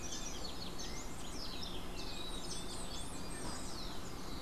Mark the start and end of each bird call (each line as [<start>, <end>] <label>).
[0.00, 4.41] Golden-faced Tyrannulet (Zimmerius chrysops)